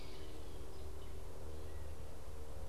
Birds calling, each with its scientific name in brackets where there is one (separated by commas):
Gray Catbird (Dumetella carolinensis)